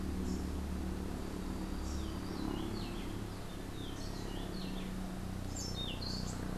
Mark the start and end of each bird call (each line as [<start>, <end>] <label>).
[0.16, 0.66] Rufous-capped Warbler (Basileuterus rufifrons)
[1.86, 4.96] Rufous-breasted Wren (Pheugopedius rutilus)
[5.36, 6.56] Orange-billed Nightingale-Thrush (Catharus aurantiirostris)